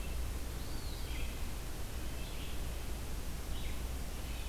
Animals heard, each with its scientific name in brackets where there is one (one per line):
Red-eyed Vireo (Vireo olivaceus)
Eastern Wood-Pewee (Contopus virens)
Red-breasted Nuthatch (Sitta canadensis)